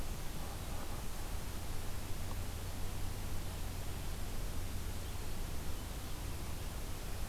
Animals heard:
forest ambience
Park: Marsh-Billings-Rockefeller National Historical Park